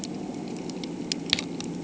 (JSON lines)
{"label": "anthrophony, boat engine", "recorder": "HydroMoth"}